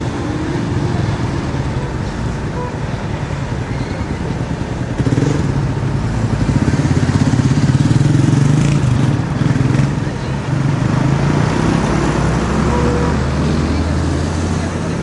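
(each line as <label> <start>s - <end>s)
Cars and other traffic driving by on a road. 0.0s - 15.0s
A car horn sounds in the distance. 1.8s - 1.9s
A car horn sounds in the distance. 2.6s - 2.7s
A motorcycle revs up and drives by on a road outdoors. 4.9s - 15.0s
Several people are talking in the distance outdoors. 10.0s - 10.7s
A car honks loudly in the distance. 12.7s - 13.1s
Several people are talking in the distance outdoors. 13.4s - 15.0s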